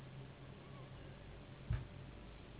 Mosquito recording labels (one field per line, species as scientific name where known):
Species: Anopheles gambiae s.s.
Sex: female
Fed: unfed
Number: one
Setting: insect culture